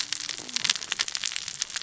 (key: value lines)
label: biophony, cascading saw
recorder: SoundTrap 600 or HydroMoth